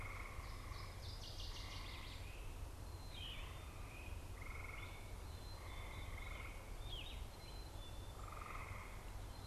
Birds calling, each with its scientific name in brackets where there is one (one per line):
Yellow-throated Vireo (Vireo flavifrons)
Black-capped Chickadee (Poecile atricapillus)
Northern Waterthrush (Parkesia noveboracensis)